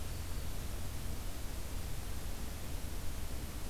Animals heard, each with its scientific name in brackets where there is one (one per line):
Black-throated Green Warbler (Setophaga virens)